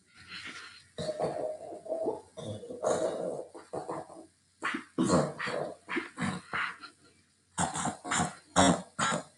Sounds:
Throat clearing